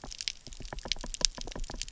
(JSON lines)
{"label": "biophony, knock", "recorder": "SoundTrap 300"}